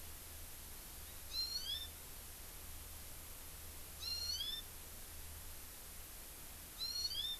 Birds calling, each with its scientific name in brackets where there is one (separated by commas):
Hawaii Amakihi (Chlorodrepanis virens)